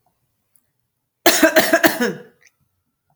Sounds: Cough